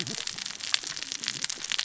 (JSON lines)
{"label": "biophony, cascading saw", "recorder": "SoundTrap 600 or HydroMoth"}